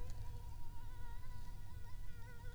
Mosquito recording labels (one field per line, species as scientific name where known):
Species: Anopheles arabiensis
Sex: female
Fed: unfed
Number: one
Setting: cup